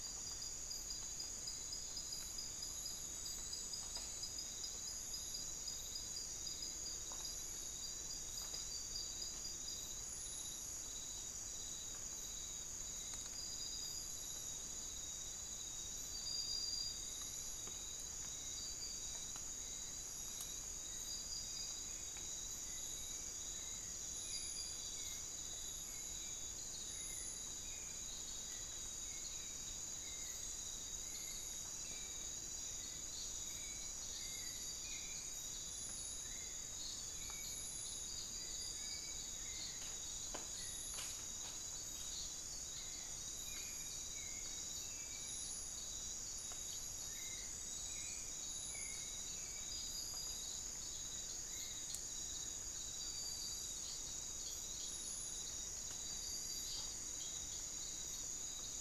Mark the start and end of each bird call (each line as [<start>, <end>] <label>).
[12.23, 51.94] Hauxwell's Thrush (Turdus hauxwelli)
[51.73, 53.34] Amazonian Barred-Woodcreeper (Dendrocolaptes certhia)
[55.44, 58.63] unidentified bird